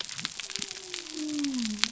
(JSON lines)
{"label": "biophony", "recorder": "SoundTrap 300"}